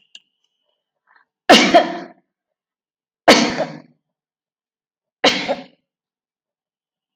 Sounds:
Sneeze